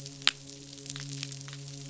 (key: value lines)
label: biophony, midshipman
recorder: SoundTrap 500